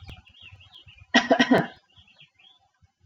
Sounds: Cough